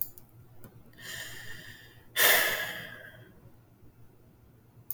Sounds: Sigh